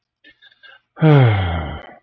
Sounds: Sigh